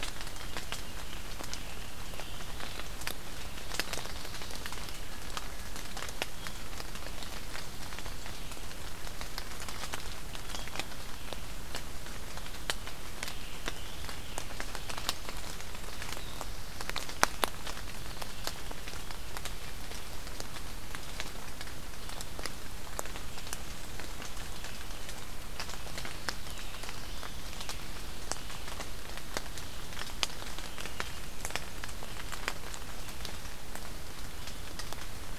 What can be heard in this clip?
Veery, Black-throated Blue Warbler